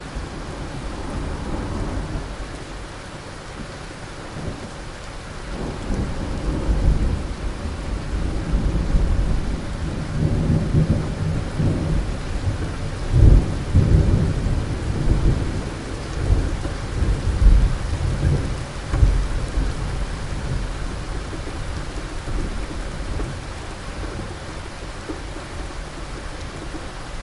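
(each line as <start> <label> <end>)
0.0 A distant thunderstorm with rolling thunder and rain sounds. 27.2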